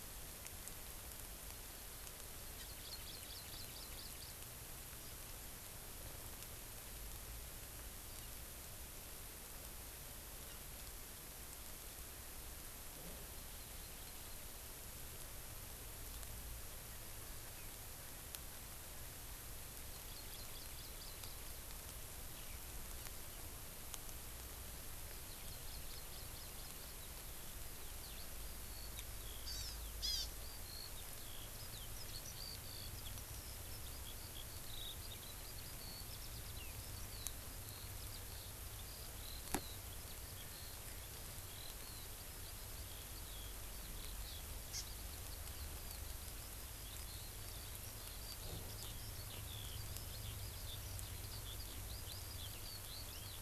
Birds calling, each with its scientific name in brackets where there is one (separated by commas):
Hawaii Amakihi (Chlorodrepanis virens), Eurasian Skylark (Alauda arvensis)